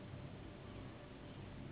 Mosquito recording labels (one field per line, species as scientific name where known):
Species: Anopheles gambiae s.s.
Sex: female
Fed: unfed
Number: one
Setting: insect culture